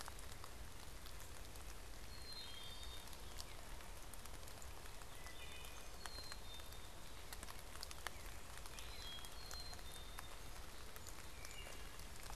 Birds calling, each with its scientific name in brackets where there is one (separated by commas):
Wood Thrush (Hylocichla mustelina), Song Sparrow (Melospiza melodia), Black-capped Chickadee (Poecile atricapillus)